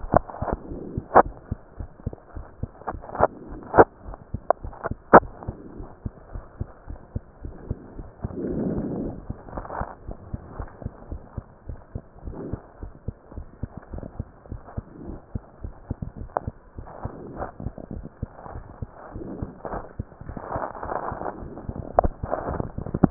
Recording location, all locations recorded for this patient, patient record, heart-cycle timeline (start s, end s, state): mitral valve (MV)
aortic valve (AV)+pulmonary valve (PV)+tricuspid valve (TV)+mitral valve (MV)
#Age: Child
#Sex: Male
#Height: 123.0 cm
#Weight: 23.9 kg
#Pregnancy status: False
#Murmur: Absent
#Murmur locations: nan
#Most audible location: nan
#Systolic murmur timing: nan
#Systolic murmur shape: nan
#Systolic murmur grading: nan
#Systolic murmur pitch: nan
#Systolic murmur quality: nan
#Diastolic murmur timing: nan
#Diastolic murmur shape: nan
#Diastolic murmur grading: nan
#Diastolic murmur pitch: nan
#Diastolic murmur quality: nan
#Outcome: Abnormal
#Campaign: 2015 screening campaign
0.00	5.76	unannotated
5.76	5.88	S1
5.88	6.04	systole
6.04	6.14	S2
6.14	6.34	diastole
6.34	6.44	S1
6.44	6.56	systole
6.56	6.70	S2
6.70	6.88	diastole
6.88	6.98	S1
6.98	7.12	systole
7.12	7.26	S2
7.26	7.44	diastole
7.44	7.54	S1
7.54	7.66	systole
7.66	7.80	S2
7.80	7.96	diastole
7.96	8.08	S1
8.08	8.20	systole
8.20	8.36	S2
8.36	10.06	unannotated
10.06	10.16	S1
10.16	10.28	systole
10.28	10.40	S2
10.40	10.56	diastole
10.56	10.68	S1
10.68	10.82	systole
10.82	10.92	S2
10.92	11.10	diastole
11.10	11.22	S1
11.22	11.36	systole
11.36	11.48	S2
11.48	11.68	diastole
11.68	11.80	S1
11.80	11.94	systole
11.94	12.06	S2
12.06	12.24	diastole
12.24	12.36	S1
12.36	12.48	systole
12.48	12.62	S2
12.62	12.80	diastole
12.80	12.92	S1
12.92	13.04	systole
13.04	13.18	S2
13.18	13.36	diastole
13.36	13.46	S1
13.46	13.60	systole
13.60	13.70	S2
13.70	13.92	diastole
13.92	14.04	S1
14.04	14.16	systole
14.16	14.30	S2
14.30	14.50	diastole
14.50	14.62	S1
14.62	14.74	systole
14.74	14.88	S2
14.88	15.06	diastole
15.06	15.20	S1
15.20	15.32	systole
15.32	15.46	S2
15.46	15.64	diastole
15.64	15.74	S1
15.74	15.88	systole
15.88	15.98	S2
15.98	16.20	diastole
16.20	16.30	S1
16.30	16.42	systole
16.42	16.54	S2
16.54	16.75	diastole
16.75	16.88	S1
16.88	17.02	systole
17.02	17.14	S2
17.14	17.34	diastole
17.34	17.48	S1
17.48	17.60	systole
17.60	17.74	S2
17.74	17.92	diastole
17.92	18.06	S1
18.06	18.20	systole
18.20	18.34	S2
18.34	18.54	diastole
18.54	18.66	S1
18.66	18.80	systole
18.80	18.92	S2
18.92	19.14	diastole
19.14	19.28	S1
19.28	19.40	systole
19.40	19.52	S2
19.52	19.72	diastole
19.72	19.84	S1
19.84	19.96	systole
19.96	20.06	S2
20.06	23.10	unannotated